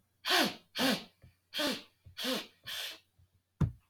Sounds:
Sniff